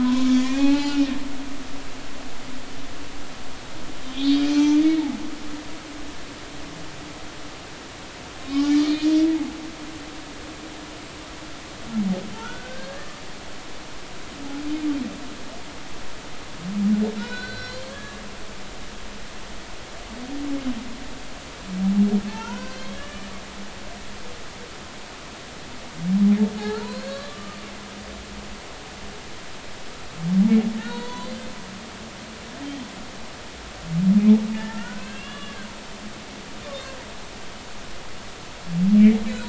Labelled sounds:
0.0	1.6	humpback whale, 0.80 to 3.2 kHz
4.0	4.8	humpback whale, 0.83 to 6.1 kHz
8.4	8.7	humpback whale, 3.7 to 4.0 kHz
12.3	13.1	humpback whale, 1.3 to 1.9 kHz
17.1	18.2	humpback whale, 1.3 to 5.4 kHz
22.3	23.8	humpback whale, 0.83 to 4.7 kHz
26.8	27.6	humpback whale, 0.90 to 4.6 kHz
30.8	31.3	humpback whale, 0.90 to 4.5 kHz
34.5	35.7	humpback whale, 0.83 to 3.5 kHz

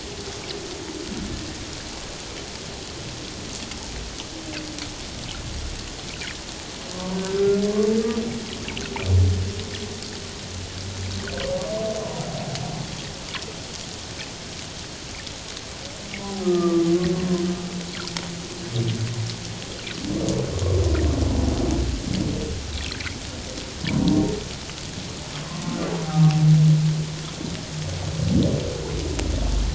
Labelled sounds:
7.1	7.6	humpback whale, 1.3 to 1.6 kHz
16.4	16.8	humpback whale, 1.1 to 1.3 kHz
26.0	26.4	humpback whale, 0.78 to 0.84 kHz

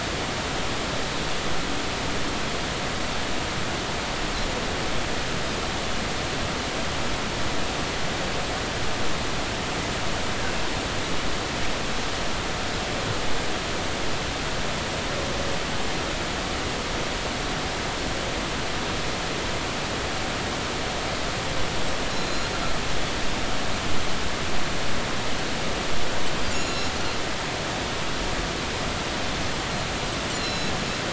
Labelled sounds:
22.1	22.5	Pacific white-sided dolphin, 3.9 to 6.9 kHz
26.5	26.9	Pacific white-sided dolphin, 2.7 to 7.0 kHz
30.3	30.7	Pacific white-sided dolphin, 2.7 to 8.0 kHz

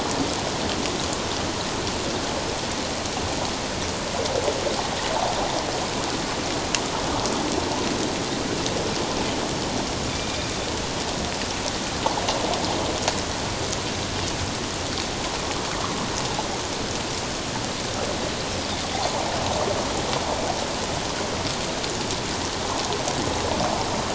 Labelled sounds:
10.1	10.5	Pacific white-sided dolphin, 2.2 to 2.5 kHz

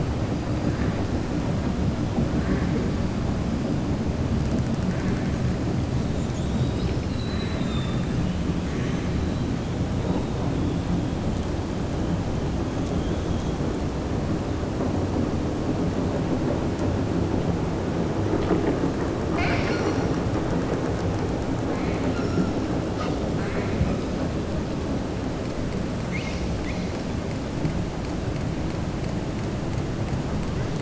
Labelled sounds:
19.2	20.1	killer whale, southern resident, 0.71 to 5.9 kHz

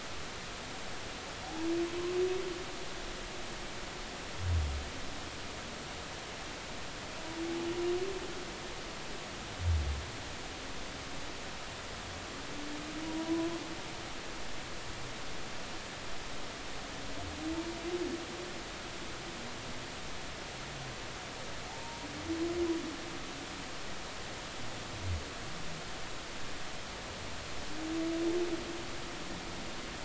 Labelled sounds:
13.2	13.6	humpback whale, 0.93 to 1.1 kHz
21.7	22.1	humpback whale, 0.80 to 0.99 kHz

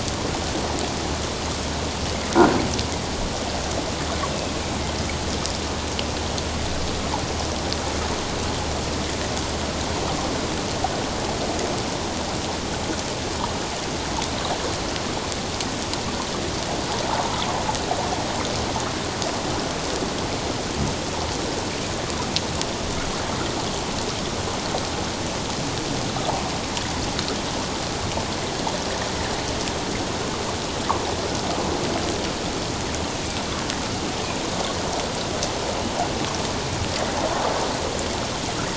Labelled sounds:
4.3	4.6	killer whale, northern resident, A clan, AA subclan, 2.5 to 2.8 kHz

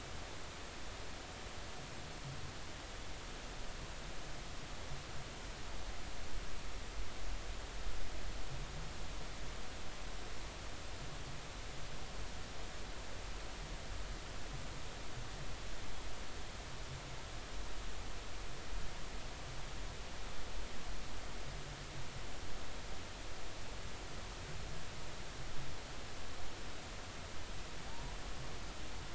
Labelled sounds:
27.9	28.1	humpback whale, 0.83 to 0.99 kHz

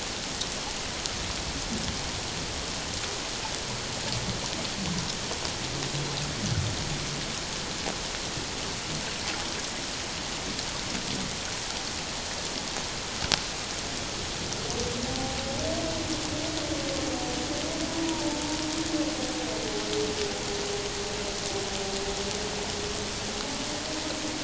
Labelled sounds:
15.1	15.4	humpback whale, 0.78 to 0.84 kHz
18.0	18.4	humpback whale, 0.84 to 1.0 kHz

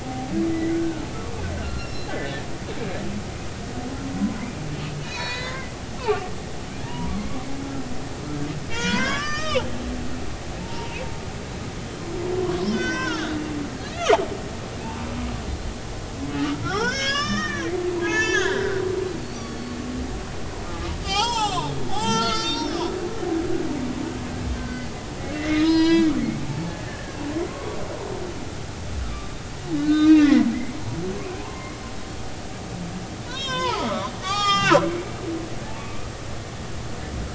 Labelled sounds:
0.0	1.1	humpback whale, 0.80 to 2.1 kHz
1.6	2.3	humpback whale, 1.3 to 5.5 kHz
5.0	5.7	humpback whale, 0.90 to 6.8 kHz
6.8	7.3	humpback whale, 0.86 to 2.4 kHz
8.7	9.7	humpback whale, 0.80 to 7.8 kHz
10.6	11.0	humpback whale, 0.83 to 0.99 kHz
12.5	13.4	humpback whale, 0.96 to 6.3 kHz
14.8	15.1	humpback whale, 0.83 to 0.99 kHz
16.4	18.8	humpback whale, 0.80 to 7.3 kHz
19.3	19.7	humpback whale, 3.2 to 5.9 kHz
20.7	22.9	humpback whale, 0.80 to 7.7 kHz
24.6	27.8	humpback whale, 0.83 to 5.3 kHz
29.0	29.4	humpback whale, 1.1 to 1.4 kHz
29.8	30.4	humpback whale, 1.2 to 4.1 kHz
31.3	31.8	humpback whale, 0.80 to 1.2 kHz
33.2	34.9	humpback whale, 0.80 to 7.4 kHz
35.8	36.0	humpback whale, 1.1 to 1.2 kHz

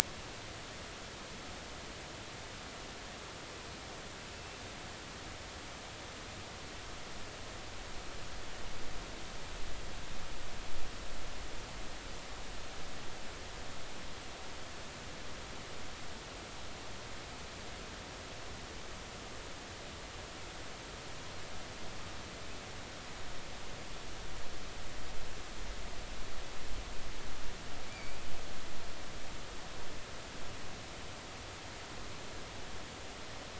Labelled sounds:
4.3	4.6	killer whale, offshore, 2.6 to 2.8 kHz
27.9	28.2	killer whale, offshore, 2.1 to 2.4 kHz

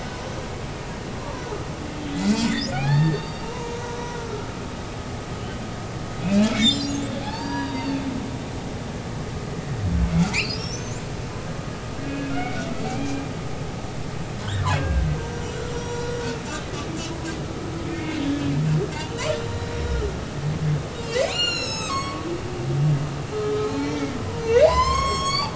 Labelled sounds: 2.1	3.8	humpback whale, 0.80 to 4.7 kHz
4.1	4.5	humpback whale, 1.3 to 1.5 kHz
5.4	5.6	humpback whale, 2.9 to 3.1 kHz
6.2	8.0	humpback whale, 0.80 to 7.4 kHz
10.3	11.0	humpback whale, 4.0 to 6.4 kHz
12.0	13.3	humpback whale, 1.3 to 2.6 kHz
14.4	15.0	humpback whale, 1.4 to 2.7 kHz
15.3	16.2	humpback whale, 1.4 to 5.9 kHz
17.9	18.5	humpback whale, 1.7 to 2.3 kHz
19.1	20.0	humpback whale, 2.8 to 3.9 kHz
20.9	22.3	humpback whale, 0.96 to 8.0 kHz
23.6	24.2	humpback whale, 2.0 to 4.3 kHz
24.4	25.5	humpback whale, 0.80 to 8.0 kHz

